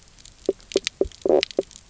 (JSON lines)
{"label": "biophony, knock croak", "recorder": "SoundTrap 300"}